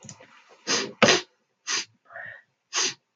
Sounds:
Sniff